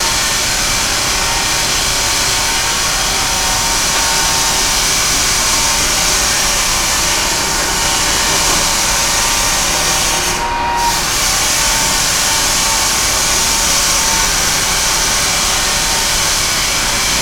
Are people singing?
no